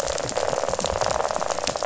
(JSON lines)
{"label": "biophony, rattle", "recorder": "SoundTrap 500"}